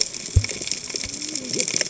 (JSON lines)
{"label": "biophony, cascading saw", "recorder": "HydroMoth"}